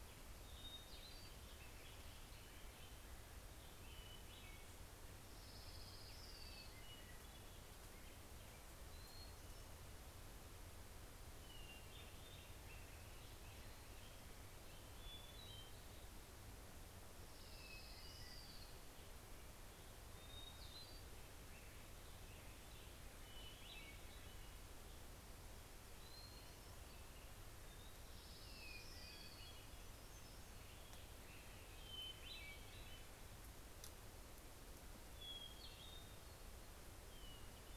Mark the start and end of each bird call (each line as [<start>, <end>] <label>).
[0.00, 10.40] Hermit Thrush (Catharus guttatus)
[4.70, 7.70] Orange-crowned Warbler (Leiothlypis celata)
[10.90, 24.90] Hermit Thrush (Catharus guttatus)
[16.00, 20.00] Orange-crowned Warbler (Leiothlypis celata)
[25.70, 30.40] Hermit Thrush (Catharus guttatus)
[27.40, 30.80] Orange-crowned Warbler (Leiothlypis celata)
[27.50, 31.70] Hermit Warbler (Setophaga occidentalis)
[31.10, 37.77] Hermit Thrush (Catharus guttatus)